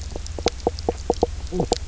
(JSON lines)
{"label": "biophony, knock croak", "recorder": "SoundTrap 300"}